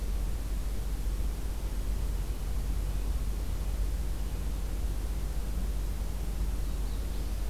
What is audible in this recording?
Magnolia Warbler